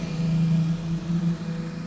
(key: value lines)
label: anthrophony, boat engine
recorder: SoundTrap 500